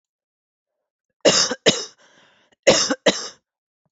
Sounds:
Cough